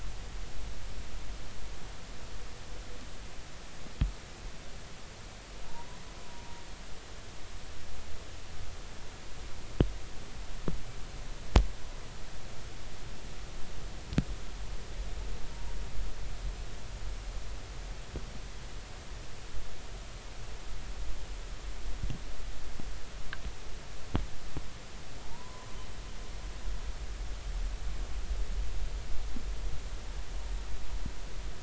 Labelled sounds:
25.2	25.7	humpback whale, 0.80 to 1.1 kHz

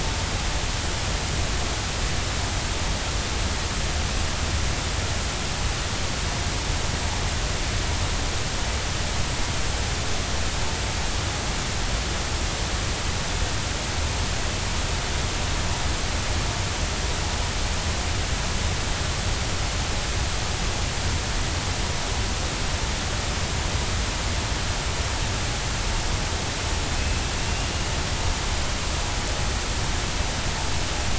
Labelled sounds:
26.9	27.7	killer whale, 2.5 to 2.8 kHz

